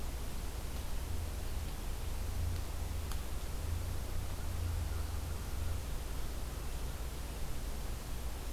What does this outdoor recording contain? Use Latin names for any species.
forest ambience